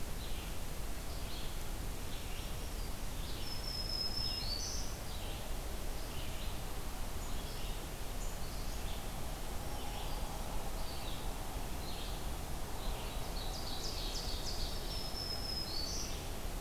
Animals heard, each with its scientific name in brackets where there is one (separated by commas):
Black-throated Green Warbler (Setophaga virens), Ovenbird (Seiurus aurocapilla), Red-eyed Vireo (Vireo olivaceus)